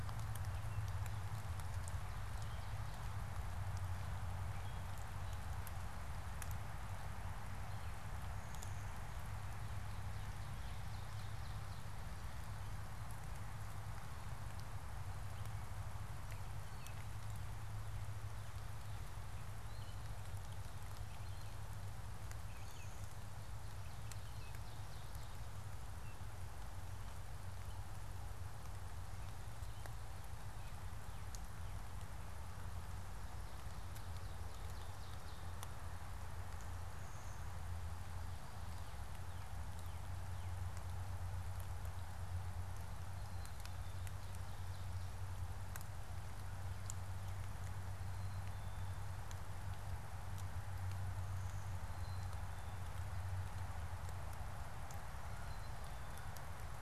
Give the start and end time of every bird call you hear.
[9.73, 12.23] Ovenbird (Seiurus aurocapilla)
[19.43, 23.23] Gray Catbird (Dumetella carolinensis)
[23.64, 25.54] Ovenbird (Seiurus aurocapilla)
[33.84, 35.63] Ovenbird (Seiurus aurocapilla)

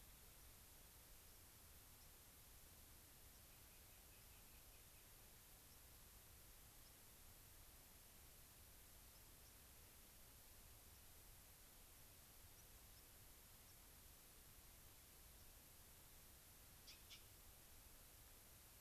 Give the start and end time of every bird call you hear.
[0.41, 0.51] White-crowned Sparrow (Zonotrichia leucophrys)
[2.00, 2.10] White-crowned Sparrow (Zonotrichia leucophrys)
[3.31, 3.50] White-crowned Sparrow (Zonotrichia leucophrys)
[3.40, 5.21] Rock Wren (Salpinctes obsoletus)
[5.61, 5.80] White-crowned Sparrow (Zonotrichia leucophrys)
[6.80, 6.91] White-crowned Sparrow (Zonotrichia leucophrys)
[9.11, 9.51] White-crowned Sparrow (Zonotrichia leucophrys)
[12.51, 13.01] White-crowned Sparrow (Zonotrichia leucophrys)
[13.61, 13.80] White-crowned Sparrow (Zonotrichia leucophrys)
[15.30, 15.51] White-crowned Sparrow (Zonotrichia leucophrys)

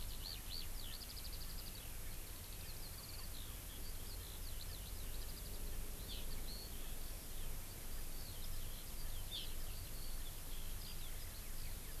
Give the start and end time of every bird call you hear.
[0.00, 12.00] Eurasian Skylark (Alauda arvensis)
[6.05, 6.25] Hawaii Amakihi (Chlorodrepanis virens)
[9.25, 9.45] Hawaii Amakihi (Chlorodrepanis virens)

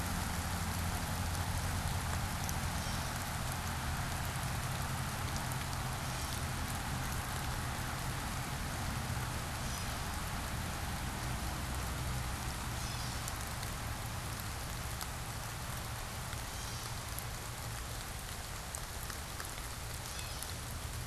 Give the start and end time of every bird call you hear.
[2.40, 3.40] Gray Catbird (Dumetella carolinensis)
[5.70, 6.70] Gray Catbird (Dumetella carolinensis)
[9.30, 10.30] Gray Catbird (Dumetella carolinensis)
[12.50, 13.50] Gray Catbird (Dumetella carolinensis)
[16.20, 17.20] Gray Catbird (Dumetella carolinensis)
[19.80, 20.80] Northern Waterthrush (Parkesia noveboracensis)

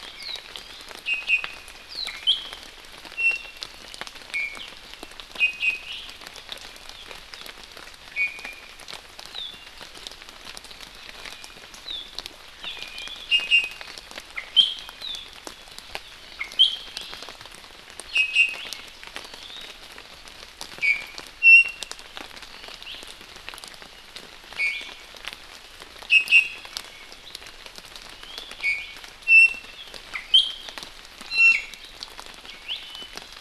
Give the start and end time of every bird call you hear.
[0.00, 1.70] Iiwi (Drepanis coccinea)
[2.30, 2.60] Iiwi (Drepanis coccinea)
[3.10, 3.70] Iiwi (Drepanis coccinea)
[4.30, 4.60] Iiwi (Drepanis coccinea)
[5.40, 6.00] Iiwi (Drepanis coccinea)
[8.10, 8.70] Iiwi (Drepanis coccinea)
[12.60, 12.70] Hawaii Amakihi (Chlorodrepanis virens)
[12.70, 13.90] Iiwi (Drepanis coccinea)
[14.40, 15.00] Iiwi (Drepanis coccinea)
[16.40, 17.30] Iiwi (Drepanis coccinea)
[18.10, 18.60] Iiwi (Drepanis coccinea)
[19.20, 19.70] Iiwi (Drepanis coccinea)
[20.80, 22.00] Iiwi (Drepanis coccinea)
[22.80, 23.00] Iiwi (Drepanis coccinea)
[24.60, 25.10] Iiwi (Drepanis coccinea)
[26.10, 27.30] Iiwi (Drepanis coccinea)
[28.10, 29.00] Iiwi (Drepanis coccinea)
[29.30, 29.80] Iiwi (Drepanis coccinea)
[30.30, 30.70] Iiwi (Drepanis coccinea)
[31.30, 31.80] Iiwi (Drepanis coccinea)
[32.60, 32.80] Iiwi (Drepanis coccinea)

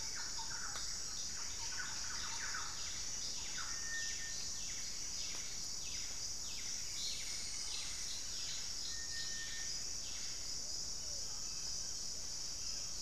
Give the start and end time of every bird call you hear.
[0.00, 4.23] Thrush-like Wren (Campylorhynchus turdinus)
[0.00, 13.01] Cinereous Tinamou (Crypturellus cinereus)
[1.63, 10.93] Buff-breasted Wren (Cantorchilus leucotis)
[10.83, 13.01] Pale-vented Pigeon (Patagioenas cayennensis)

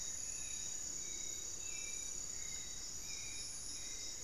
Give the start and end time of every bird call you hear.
[0.00, 1.09] Black-faced Antthrush (Formicarius analis)
[0.00, 4.24] Hauxwell's Thrush (Turdus hauxwelli)
[0.89, 4.24] unidentified bird
[3.59, 4.24] Striped Woodcreeper (Xiphorhynchus obsoletus)

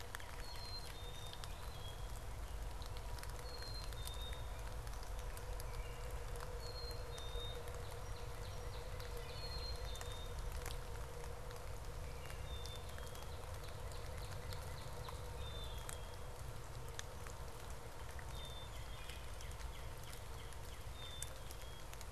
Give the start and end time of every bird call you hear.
[0.00, 0.84] Northern Cardinal (Cardinalis cardinalis)
[0.14, 1.44] Black-capped Chickadee (Poecile atricapillus)
[1.34, 2.24] Wood Thrush (Hylocichla mustelina)
[3.24, 4.84] Black-capped Chickadee (Poecile atricapillus)
[5.44, 6.34] Wood Thrush (Hylocichla mustelina)
[6.44, 7.74] Black-capped Chickadee (Poecile atricapillus)
[7.24, 9.94] Northern Cardinal (Cardinalis cardinalis)
[8.84, 9.74] Wood Thrush (Hylocichla mustelina)
[9.14, 10.54] Black-capped Chickadee (Poecile atricapillus)
[11.84, 12.54] Wood Thrush (Hylocichla mustelina)
[12.04, 15.74] Northern Cardinal (Cardinalis cardinalis)
[12.24, 13.44] Black-capped Chickadee (Poecile atricapillus)
[15.14, 16.34] Black-capped Chickadee (Poecile atricapillus)
[18.04, 19.34] Black-capped Chickadee (Poecile atricapillus)
[18.54, 21.64] Northern Cardinal (Cardinalis cardinalis)
[20.84, 22.04] Black-capped Chickadee (Poecile atricapillus)

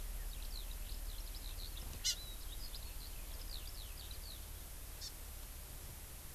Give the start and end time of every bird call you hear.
[0.26, 4.46] Eurasian Skylark (Alauda arvensis)
[2.06, 2.16] Hawaii Amakihi (Chlorodrepanis virens)
[4.96, 5.06] Hawaii Amakihi (Chlorodrepanis virens)

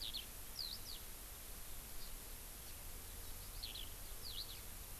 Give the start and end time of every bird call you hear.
[0.00, 0.20] Eurasian Skylark (Alauda arvensis)
[0.50, 1.00] Eurasian Skylark (Alauda arvensis)
[2.00, 2.10] Hawaii Amakihi (Chlorodrepanis virens)
[3.60, 3.90] Eurasian Skylark (Alauda arvensis)
[4.20, 4.60] Eurasian Skylark (Alauda arvensis)

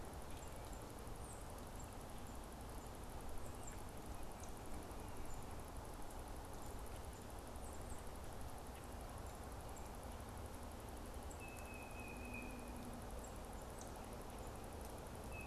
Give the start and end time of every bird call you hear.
[0.00, 15.47] Tufted Titmouse (Baeolophus bicolor)

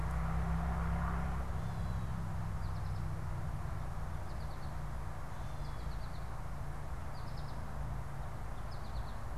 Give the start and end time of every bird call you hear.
[1.36, 9.38] American Goldfinch (Spinus tristis)
[1.36, 9.38] Gray Catbird (Dumetella carolinensis)

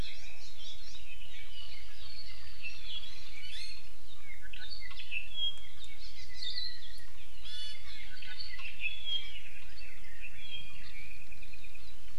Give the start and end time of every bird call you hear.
[1.00, 3.30] Apapane (Himatione sanguinea)
[3.40, 3.90] Hawaii Amakihi (Chlorodrepanis virens)
[4.20, 7.20] Apapane (Himatione sanguinea)
[6.00, 6.40] Hawaii Amakihi (Chlorodrepanis virens)
[6.40, 6.70] Hawaii Akepa (Loxops coccineus)
[7.40, 8.60] Iiwi (Drepanis coccinea)
[8.10, 9.50] Apapane (Himatione sanguinea)
[10.90, 11.80] Apapane (Himatione sanguinea)

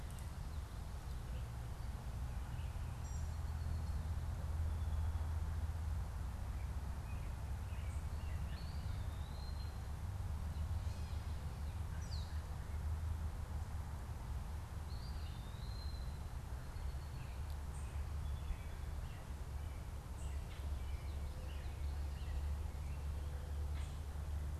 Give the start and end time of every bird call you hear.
[2.80, 3.50] American Robin (Turdus migratorius)
[6.20, 9.10] American Robin (Turdus migratorius)
[8.30, 10.00] Eastern Wood-Pewee (Contopus virens)
[12.00, 12.40] Red-winged Blackbird (Agelaius phoeniceus)
[14.60, 16.30] Eastern Wood-Pewee (Contopus virens)
[17.10, 23.00] American Robin (Turdus migratorius)

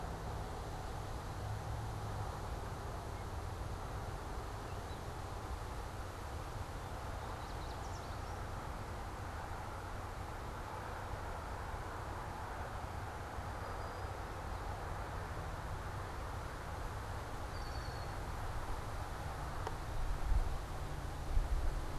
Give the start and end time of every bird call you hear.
[6.88, 8.78] Yellow Warbler (Setophaga petechia)
[13.48, 14.98] Brown-headed Cowbird (Molothrus ater)
[17.38, 18.28] Red-winged Blackbird (Agelaius phoeniceus)

